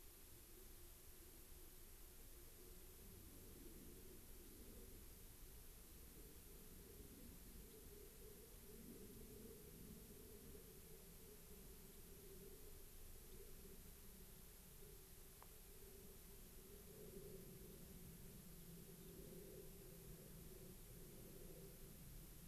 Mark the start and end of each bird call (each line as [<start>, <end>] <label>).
[7.66, 7.76] Gray-crowned Rosy-Finch (Leucosticte tephrocotis)
[18.96, 19.16] Gray-crowned Rosy-Finch (Leucosticte tephrocotis)